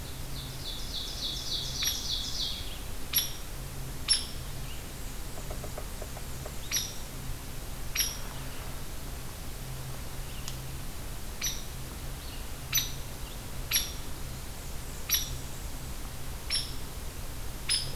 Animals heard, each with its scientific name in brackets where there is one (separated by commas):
Ovenbird (Seiurus aurocapilla), Blackburnian Warbler (Setophaga fusca), Hairy Woodpecker (Dryobates villosus)